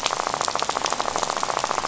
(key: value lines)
label: biophony, rattle
recorder: SoundTrap 500